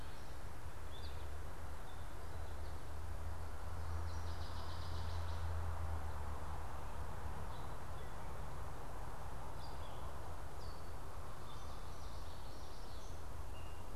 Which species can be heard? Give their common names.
Gray Catbird, American Goldfinch, Northern Waterthrush, Common Yellowthroat